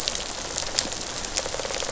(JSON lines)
{"label": "biophony, rattle response", "recorder": "SoundTrap 500"}